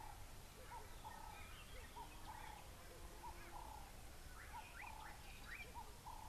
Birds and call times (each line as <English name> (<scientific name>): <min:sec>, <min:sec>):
Slate-colored Boubou (Laniarius funebris): 0:05.1